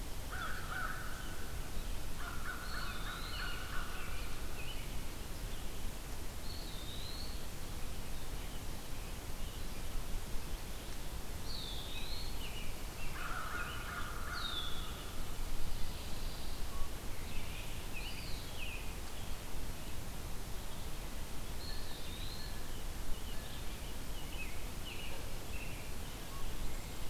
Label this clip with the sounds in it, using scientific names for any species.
Corvus brachyrhynchos, Contopus virens, Turdus migratorius, Agelaius phoeniceus, Setophaga pinus